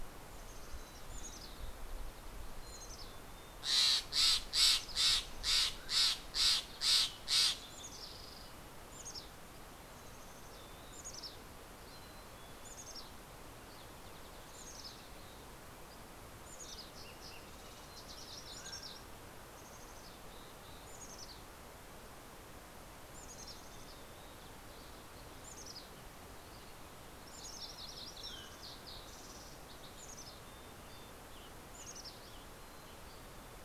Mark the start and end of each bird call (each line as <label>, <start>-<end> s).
Mountain Chickadee (Poecile gambeli), 0.8-3.9 s
Steller's Jay (Cyanocitta stelleri), 3.3-7.9 s
Mountain Chickadee (Poecile gambeli), 8.6-12.9 s
Mountain Chickadee (Poecile gambeli), 13.8-33.0 s
Fox Sparrow (Passerella iliaca), 16.4-19.3 s
Mountain Quail (Oreortyx pictus), 17.5-19.8 s
MacGillivray's Warbler (Geothlypis tolmiei), 26.3-28.4 s
Fox Sparrow (Passerella iliaca), 26.5-30.1 s
Mountain Quail (Oreortyx pictus), 27.6-29.0 s
Western Tanager (Piranga ludoviciana), 30.6-33.6 s